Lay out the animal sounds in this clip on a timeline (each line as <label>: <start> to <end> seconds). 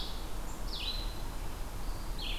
Red-eyed Vireo (Vireo olivaceus): 0.0 to 2.4 seconds